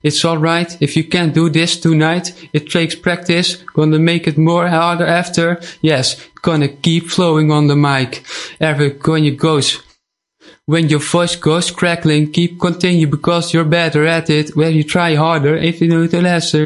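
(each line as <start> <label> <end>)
0.0 A person is singing nervously with rhythmic loudness. 16.7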